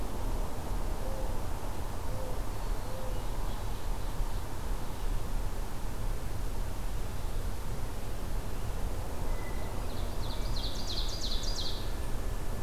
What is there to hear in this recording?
Mourning Dove, Ovenbird, Hermit Thrush